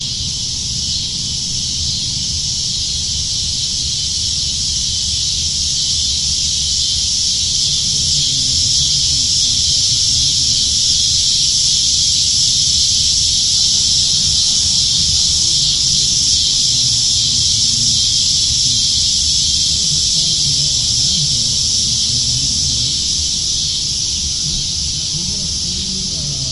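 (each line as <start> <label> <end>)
0.0 Cicadas chirp loudly and continuously in a field. 26.5
8.1 A male voice makes announcements over a microphone in the distance. 11.8
13.5 A distant voice making announcements over a microphone in the background. 26.5
21.0 Motorbikes driving by in the distance. 26.5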